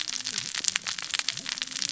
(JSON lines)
{"label": "biophony, cascading saw", "recorder": "SoundTrap 600 or HydroMoth"}